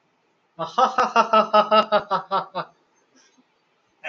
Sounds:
Laughter